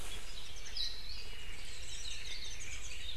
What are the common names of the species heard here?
Warbling White-eye, Apapane